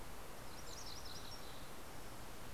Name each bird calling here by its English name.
MacGillivray's Warbler, Mountain Chickadee